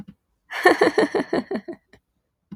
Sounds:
Laughter